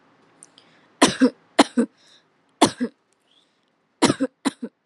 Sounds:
Cough